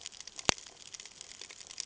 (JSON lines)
{"label": "ambient", "recorder": "HydroMoth"}